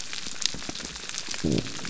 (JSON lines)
{"label": "biophony", "recorder": "SoundTrap 300"}